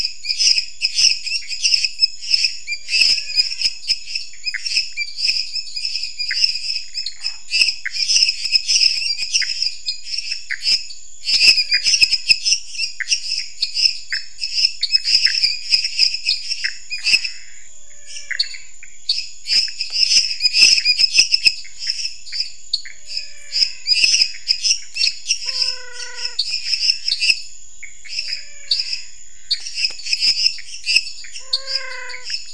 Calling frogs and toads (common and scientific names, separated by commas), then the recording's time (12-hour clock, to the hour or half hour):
lesser tree frog (Dendropsophus minutus), dwarf tree frog (Dendropsophus nanus), Pithecopus azureus, menwig frog (Physalaemus albonotatus), waxy monkey tree frog (Phyllomedusa sauvagii)
~11pm